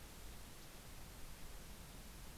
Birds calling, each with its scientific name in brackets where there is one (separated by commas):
Yellow-rumped Warbler (Setophaga coronata)